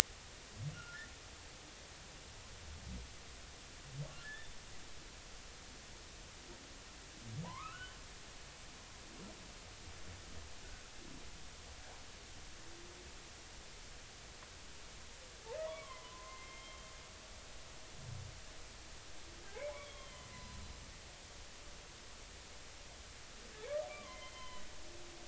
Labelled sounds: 0.7	1.1	humpback whale, 1.3 to 1.5 kHz
4.2	4.6	humpback whale, 1.6 to 3.6 kHz
7.4	8.0	humpback whale, 0.80 to 3.1 kHz
15.7	16.9	humpback whale, 0.90 to 3.2 kHz
19.8	20.6	humpback whale, 0.96 to 4.2 kHz
23.9	24.7	humpback whale, 0.96 to 3.4 kHz

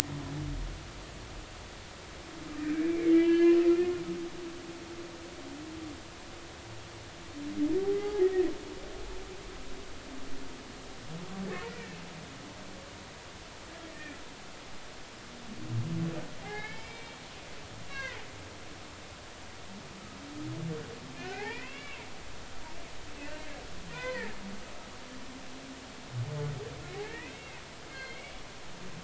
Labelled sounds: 2.6	4.0	humpback whale, 1.6 to 3.1 kHz
8.2	8.5	humpback whale, 1.7 to 2.0 kHz
9.0	9.3	humpback whale, 0.80 to 0.90 kHz
16.4	17.2	humpback whale, 0.80 to 5.2 kHz
17.9	18.2	humpback whale, 0.96 to 4.0 kHz
21.2	22.0	humpback whale, 0.80 to 3.5 kHz
23.9	24.4	humpback whale, 0.90 to 2.6 kHz
26.8	28.3	humpback whale, 1.5 to 4.3 kHz

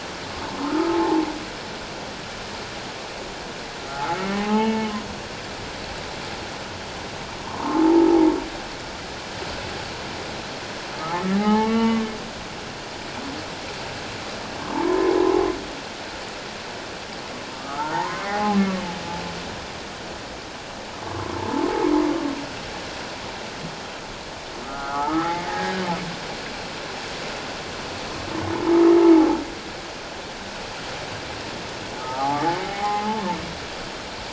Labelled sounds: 0.6	1.2	humpback whale, 0.78 to 1.5 kHz
3.9	4.9	humpback whale, 0.78 to 2.2 kHz
7.4	8.1	humpback whale, 0.78 to 1.2 kHz
11.0	12.0	humpback whale, 0.78 to 3.1 kHz
14.7	15.1	humpback whale, 0.81 to 1.1 kHz
17.6	18.8	humpback whale, 0.78 to 1.6 kHz
21.1	21.3	humpback whale, 0.97 to 1.2 kHz
24.6	25.8	humpback whale, 0.78 to 2.0 kHz
32.0	33.2	humpback whale, 0.78 to 2.2 kHz

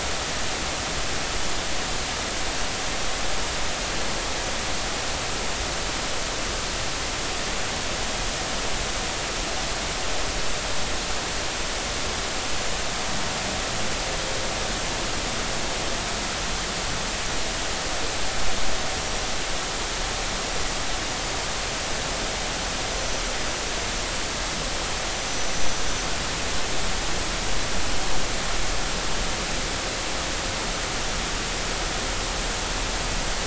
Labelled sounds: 25.3	25.5	small unidentified odontocete, 5.9 to 6.0 kHz

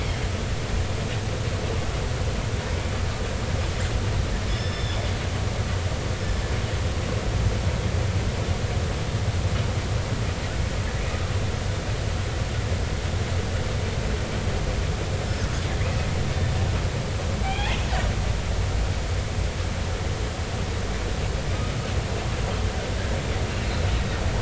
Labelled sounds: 4.5	5.0	killer whale, northern resident, 1.7 to 5.4 kHz
15.3	15.5	killer whale, northern resident, 5.1 to 5.4 kHz
17.4	17.8	killer whale, northern resident, 0.80 to 3.5 kHz
23.7	23.9	killer whale, northern resident, 3.9 to 4.4 kHz

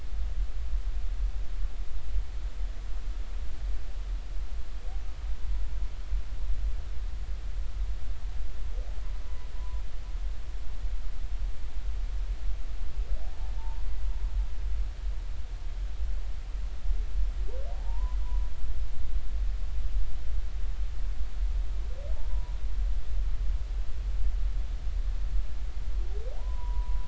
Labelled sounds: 9.2	9.8	humpback whale, 0.93 to 1.1 kHz
13.6	13.9	humpback whale, 0.83 to 1.0 kHz
17.7	18.5	humpback whale, 0.80 to 1.1 kHz
22.1	22.6	humpback whale, 0.83 to 1.0 kHz
26.4	27.0	humpback whale, 0.80 to 1.1 kHz

